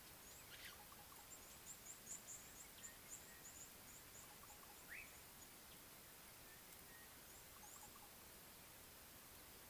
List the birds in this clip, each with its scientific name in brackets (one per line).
Red-cheeked Cordonbleu (Uraeginthus bengalus)
Slate-colored Boubou (Laniarius funebris)